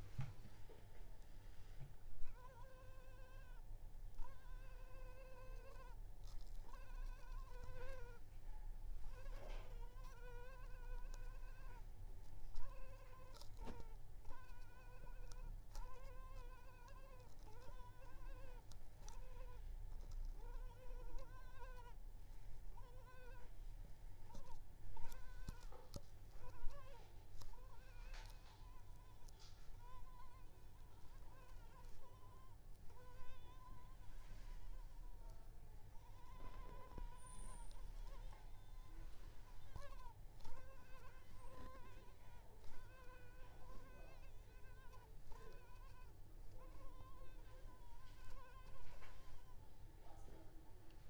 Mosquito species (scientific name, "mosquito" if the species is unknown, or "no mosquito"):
Culex pipiens complex